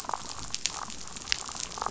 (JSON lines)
{"label": "biophony, damselfish", "recorder": "SoundTrap 500"}